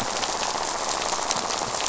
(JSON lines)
{"label": "biophony, rattle", "recorder": "SoundTrap 500"}